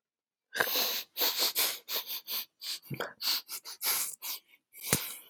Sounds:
Sniff